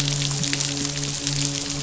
{"label": "biophony, midshipman", "recorder": "SoundTrap 500"}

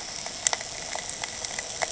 {"label": "anthrophony, boat engine", "recorder": "HydroMoth"}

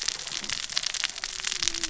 {"label": "biophony, cascading saw", "recorder": "SoundTrap 600 or HydroMoth"}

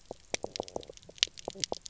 {"label": "biophony, knock croak", "recorder": "SoundTrap 300"}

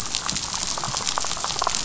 {"label": "biophony", "recorder": "SoundTrap 500"}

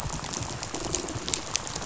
{"label": "biophony, rattle", "recorder": "SoundTrap 500"}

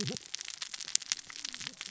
{"label": "biophony, cascading saw", "recorder": "SoundTrap 600 or HydroMoth"}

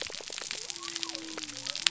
{"label": "biophony", "recorder": "SoundTrap 300"}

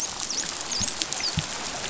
{"label": "biophony, dolphin", "recorder": "SoundTrap 500"}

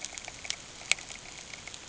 {"label": "ambient", "recorder": "HydroMoth"}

